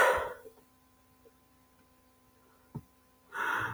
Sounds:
Sigh